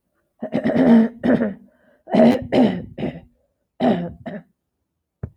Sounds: Throat clearing